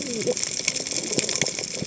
{"label": "biophony, cascading saw", "recorder": "HydroMoth"}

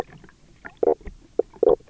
{"label": "biophony, knock croak", "recorder": "SoundTrap 300"}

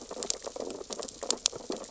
{"label": "biophony, sea urchins (Echinidae)", "recorder": "SoundTrap 600 or HydroMoth"}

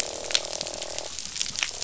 {"label": "biophony, croak", "recorder": "SoundTrap 500"}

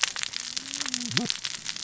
{"label": "biophony, cascading saw", "recorder": "SoundTrap 600 or HydroMoth"}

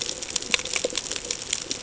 {"label": "ambient", "recorder": "HydroMoth"}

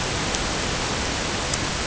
{"label": "ambient", "recorder": "HydroMoth"}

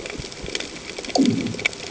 {"label": "anthrophony, bomb", "recorder": "HydroMoth"}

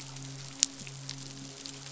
{"label": "biophony, midshipman", "recorder": "SoundTrap 500"}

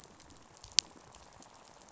{"label": "biophony, rattle", "recorder": "SoundTrap 500"}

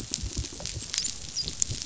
{"label": "biophony, dolphin", "recorder": "SoundTrap 500"}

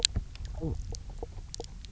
{"label": "biophony, knock croak", "recorder": "SoundTrap 300"}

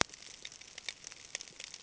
{"label": "ambient", "recorder": "HydroMoth"}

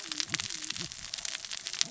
{"label": "biophony, cascading saw", "recorder": "SoundTrap 600 or HydroMoth"}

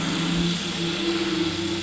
{"label": "anthrophony, boat engine", "recorder": "SoundTrap 500"}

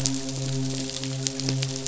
{"label": "biophony, midshipman", "recorder": "SoundTrap 500"}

